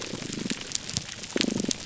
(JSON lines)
{"label": "biophony", "recorder": "SoundTrap 300"}